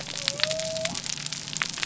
{"label": "biophony", "recorder": "SoundTrap 300"}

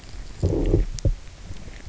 {"label": "biophony, low growl", "recorder": "SoundTrap 300"}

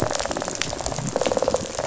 {"label": "biophony, rattle response", "recorder": "SoundTrap 500"}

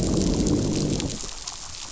{"label": "biophony, growl", "recorder": "SoundTrap 500"}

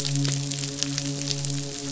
{"label": "biophony, midshipman", "recorder": "SoundTrap 500"}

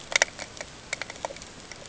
{"label": "ambient", "recorder": "HydroMoth"}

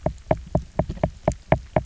{"label": "biophony, knock", "recorder": "SoundTrap 300"}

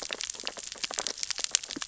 {"label": "biophony, sea urchins (Echinidae)", "recorder": "SoundTrap 600 or HydroMoth"}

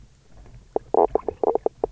{"label": "biophony, knock croak", "recorder": "SoundTrap 300"}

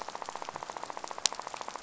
{"label": "biophony, rattle", "recorder": "SoundTrap 500"}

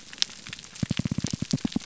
{"label": "biophony, pulse", "recorder": "SoundTrap 300"}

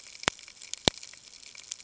{"label": "ambient", "recorder": "HydroMoth"}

